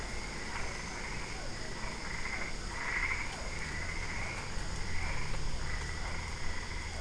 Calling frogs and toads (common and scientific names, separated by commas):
Boana albopunctata, Physalaemus cuvieri